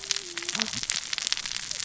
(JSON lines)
{"label": "biophony, cascading saw", "recorder": "SoundTrap 600 or HydroMoth"}